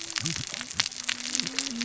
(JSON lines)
{"label": "biophony, cascading saw", "recorder": "SoundTrap 600 or HydroMoth"}